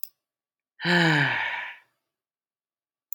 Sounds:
Sigh